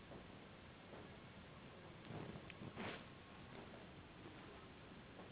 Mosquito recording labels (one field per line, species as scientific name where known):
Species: Anopheles gambiae s.s.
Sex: female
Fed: unfed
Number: one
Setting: insect culture